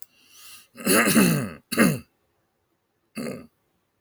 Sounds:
Throat clearing